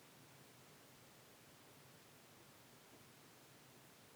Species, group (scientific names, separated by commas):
Phaneroptera falcata, Orthoptera